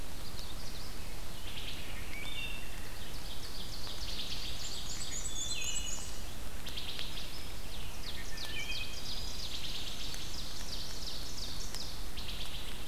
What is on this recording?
Magnolia Warbler, Wood Thrush, Ovenbird, Black-and-white Warbler